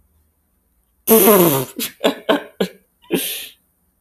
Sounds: Laughter